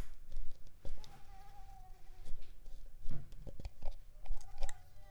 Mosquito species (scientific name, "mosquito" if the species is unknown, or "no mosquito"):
Mansonia uniformis